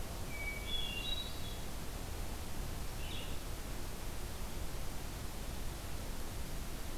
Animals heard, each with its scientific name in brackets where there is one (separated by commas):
Hermit Thrush (Catharus guttatus), Red-eyed Vireo (Vireo olivaceus)